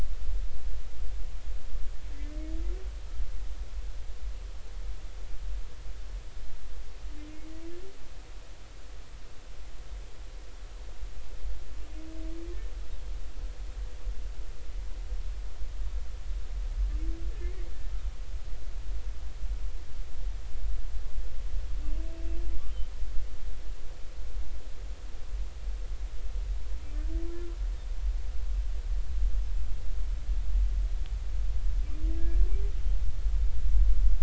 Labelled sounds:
32.2	32.4	humpback whale, 1.6 to 1.8 kHz

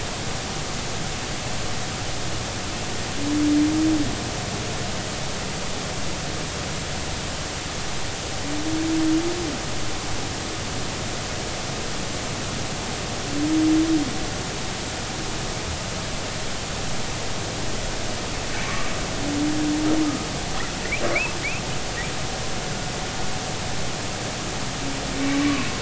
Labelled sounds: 18.6	18.9	humpback whale, 1.1 to 2.4 kHz
21.1	21.4	humpback whale, 2.0 to 2.7 kHz
25.2	25.4	humpback whale, 2.2 to 2.4 kHz

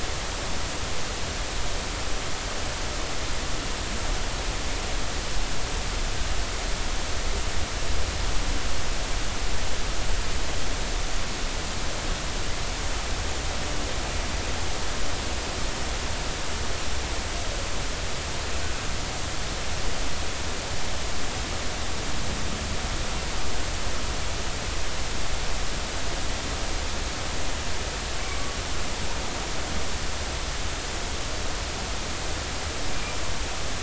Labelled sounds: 32.9	33.2	humpback whale, 2.3 to 2.5 kHz

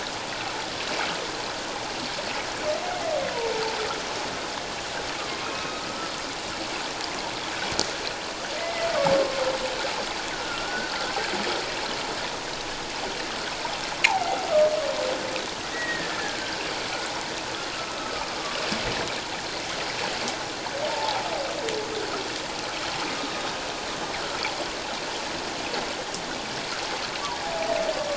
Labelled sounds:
5.4	5.8	humpback whale, 2.5 to 2.7 kHz
8.6	8.9	humpback whale, 1.9 to 2.1 kHz
10.3	11.0	humpback whale, 1.3 to 1.6 kHz
15.7	16.6	humpback whale, 1.4 to 2.0 kHz
18.0	18.3	humpback whale, 1.2 to 1.3 kHz
20.9	21.3	humpback whale, 0.78 to 0.97 kHz
23.1	23.4	humpback whale, 3.7 to 3.8 kHz

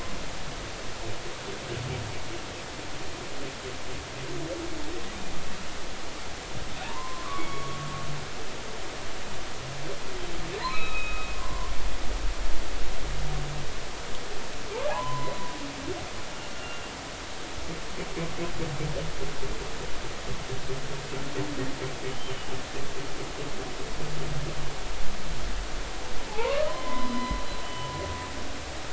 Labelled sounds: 6.8	7.9	humpback whale, 0.80 to 3.5 kHz
10.7	11.7	humpback whale, 0.96 to 3.9 kHz
14.9	15.3	humpback whale, 0.80 to 1.1 kHz
16.5	16.8	humpback whale, 1.3 to 1.5 kHz
22.1	22.5	humpback whale, 2.8 to 3.2 kHz
26.3	27.9	humpback whale, 0.80 to 3.1 kHz

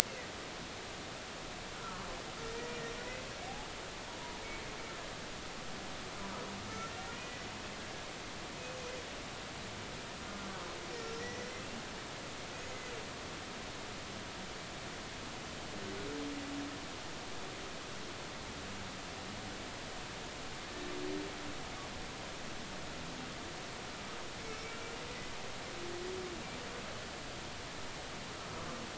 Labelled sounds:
1.7	2.0	humpback whale, 1.2 to 1.5 kHz
7.1	7.4	humpback whale, 1.9 to 2.0 kHz
11.2	11.5	humpback whale, 1.8 to 2.0 kHz
24.4	24.8	humpback whale, 2.1 to 2.3 kHz

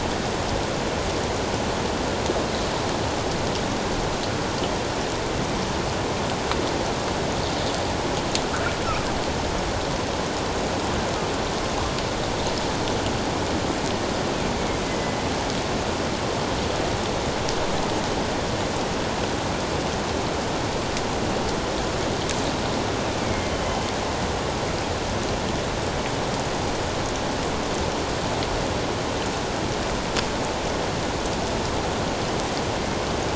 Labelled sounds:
14.8	15.2	killer whale, northern resident, A clan, AA subclan, A04 pod, 2.0 to 2.1 kHz
23.2	23.8	killer whale, northern resident, A clan, AA subclan, A04 pod, 2.1 to 3.1 kHz

